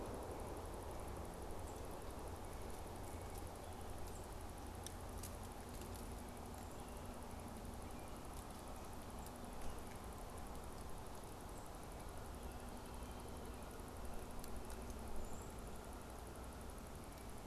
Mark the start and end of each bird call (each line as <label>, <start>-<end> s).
Brown Creeper (Certhia americana), 15.1-15.7 s